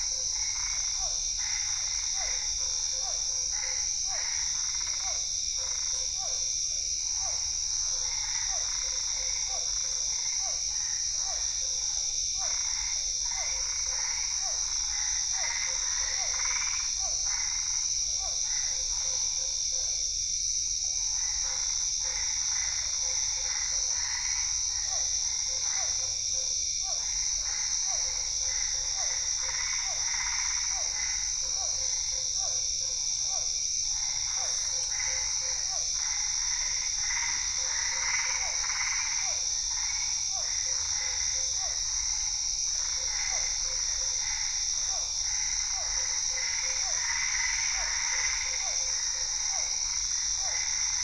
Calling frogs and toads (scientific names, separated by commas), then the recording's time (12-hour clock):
Physalaemus cuvieri, Boana albopunctata, Boana lundii
8:00pm